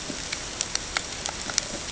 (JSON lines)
{"label": "ambient", "recorder": "HydroMoth"}